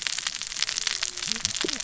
{"label": "biophony, cascading saw", "recorder": "SoundTrap 600 or HydroMoth"}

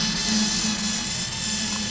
{"label": "anthrophony, boat engine", "recorder": "SoundTrap 500"}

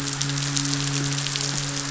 {"label": "biophony, midshipman", "recorder": "SoundTrap 500"}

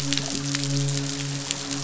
{"label": "biophony, midshipman", "recorder": "SoundTrap 500"}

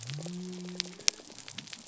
{"label": "biophony", "recorder": "SoundTrap 300"}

